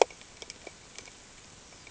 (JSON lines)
{"label": "ambient", "recorder": "HydroMoth"}